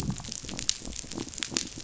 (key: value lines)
label: biophony
recorder: SoundTrap 500